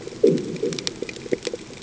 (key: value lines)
label: anthrophony, bomb
recorder: HydroMoth